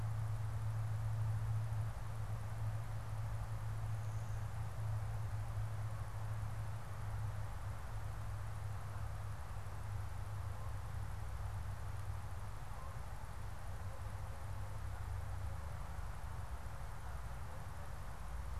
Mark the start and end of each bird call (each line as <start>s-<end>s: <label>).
12.4s-13.5s: Canada Goose (Branta canadensis)